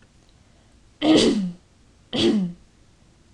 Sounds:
Throat clearing